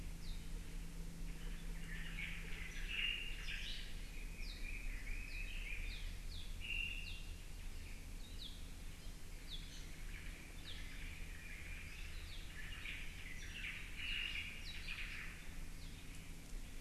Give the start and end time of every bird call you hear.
0.2s-3.7s: Apapane (Himatione sanguinea)
1.1s-4.0s: Omao (Myadestes obscurus)
3.6s-3.8s: Iiwi (Drepanis coccinea)
4.1s-6.1s: Red-billed Leiothrix (Leiothrix lutea)
4.4s-4.6s: Apapane (Himatione sanguinea)
5.3s-5.4s: Apapane (Himatione sanguinea)
5.8s-6.5s: Apapane (Himatione sanguinea)
6.6s-7.3s: Omao (Myadestes obscurus)
7.1s-7.3s: Apapane (Himatione sanguinea)
8.2s-8.5s: Apapane (Himatione sanguinea)
9.3s-12.1s: Omao (Myadestes obscurus)
9.4s-9.6s: Apapane (Himatione sanguinea)
9.6s-9.9s: Iiwi (Drepanis coccinea)
10.6s-10.8s: Apapane (Himatione sanguinea)
12.3s-12.4s: Apapane (Himatione sanguinea)
12.5s-15.3s: Omao (Myadestes obscurus)
14.6s-14.8s: Apapane (Himatione sanguinea)
15.8s-16.0s: Apapane (Himatione sanguinea)

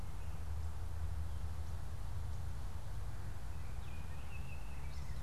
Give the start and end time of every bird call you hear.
3.4s-5.2s: Baltimore Oriole (Icterus galbula)

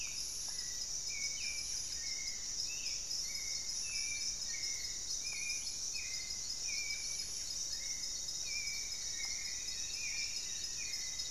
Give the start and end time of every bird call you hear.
0.0s-11.3s: Hauxwell's Thrush (Turdus hauxwelli)
0.0s-11.3s: Spot-winged Antshrike (Pygiptila stellaris)
2.6s-3.2s: unidentified bird
8.2s-10.7s: Striped Woodcreeper (Xiphorhynchus obsoletus)

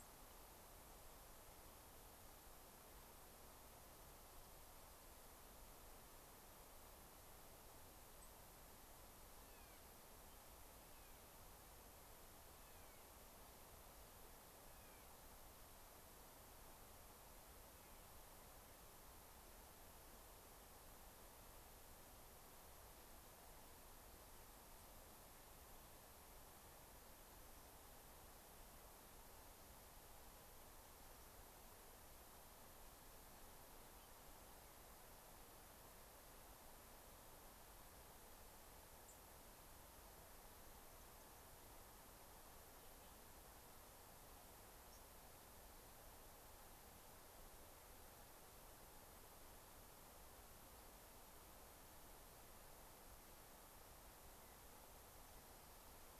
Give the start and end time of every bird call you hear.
8.1s-8.4s: unidentified bird
9.3s-9.8s: Clark's Nutcracker (Nucifraga columbiana)
10.8s-11.3s: Clark's Nutcracker (Nucifraga columbiana)
12.5s-13.1s: Clark's Nutcracker (Nucifraga columbiana)
14.6s-15.1s: Clark's Nutcracker (Nucifraga columbiana)
39.0s-39.2s: unidentified bird
44.8s-45.1s: White-crowned Sparrow (Zonotrichia leucophrys)

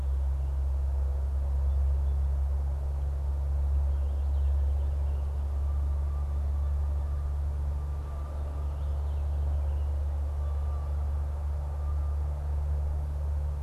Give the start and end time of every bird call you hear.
3.4s-13.6s: Canada Goose (Branta canadensis)
3.8s-5.6s: Purple Finch (Haemorhous purpureus)
8.7s-10.2s: Purple Finch (Haemorhous purpureus)

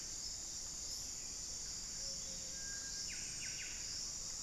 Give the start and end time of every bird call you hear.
0.0s-4.4s: Buff-breasted Wren (Cantorchilus leucotis)
0.0s-4.4s: Little Tinamou (Crypturellus soui)
0.0s-4.4s: Ruddy Quail-Dove (Geotrygon montana)

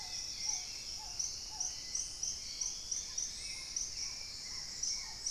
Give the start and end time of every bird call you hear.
0.0s-3.8s: Dusky-throated Antshrike (Thamnomanes ardesiacus)
0.0s-5.3s: Black-tailed Trogon (Trogon melanurus)
0.0s-5.3s: Hauxwell's Thrush (Turdus hauxwelli)
0.0s-5.3s: Paradise Tanager (Tangara chilensis)

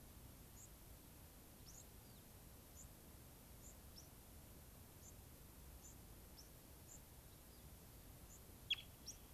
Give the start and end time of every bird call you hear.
0.0s-9.2s: White-crowned Sparrow (Zonotrichia leucophrys)
1.7s-2.3s: unidentified bird

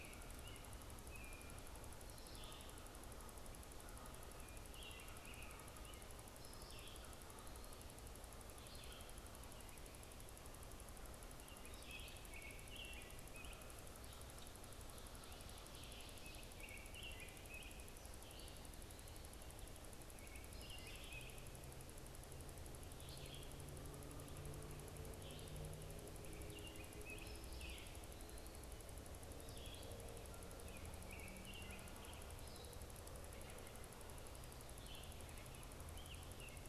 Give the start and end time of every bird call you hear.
0.0s-32.9s: American Robin (Turdus migratorius)
0.0s-36.7s: Red-eyed Vireo (Vireo olivaceus)
0.6s-13.5s: Canada Goose (Branta canadensis)
15.2s-16.8s: Ovenbird (Seiurus aurocapilla)

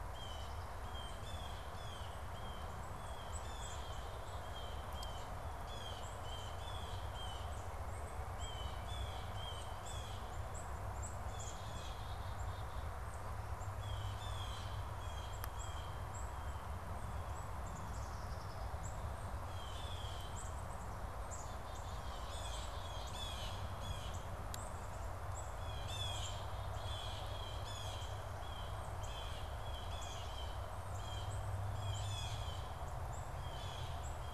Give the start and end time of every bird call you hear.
0.0s-34.3s: Black-capped Chickadee (Poecile atricapillus)
0.1s-7.7s: Blue Jay (Cyanocitta cristata)
7.4s-9.9s: Pileated Woodpecker (Dryocopus pileatus)
8.3s-10.4s: Blue Jay (Cyanocitta cristata)
11.2s-12.8s: Blue Jay (Cyanocitta cristata)
13.9s-17.0s: Blue Jay (Cyanocitta cristata)
19.4s-20.6s: Blue Jay (Cyanocitta cristata)
22.2s-24.3s: Blue Jay (Cyanocitta cristata)
25.6s-34.3s: Blue Jay (Cyanocitta cristata)

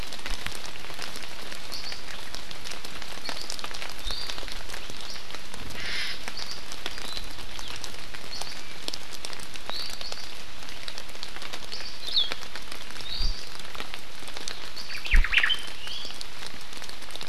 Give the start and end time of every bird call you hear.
12.0s-12.3s: Hawaii Akepa (Loxops coccineus)
13.0s-13.4s: Iiwi (Drepanis coccinea)
14.9s-15.7s: Omao (Myadestes obscurus)
15.8s-16.1s: Iiwi (Drepanis coccinea)

